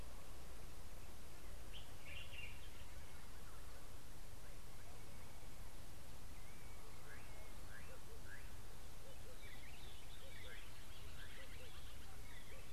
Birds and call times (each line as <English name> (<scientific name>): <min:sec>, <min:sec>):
Common Bulbul (Pycnonotus barbatus): 0:02.1
Slate-colored Boubou (Laniarius funebris): 0:07.8